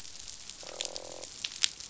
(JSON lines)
{"label": "biophony, croak", "recorder": "SoundTrap 500"}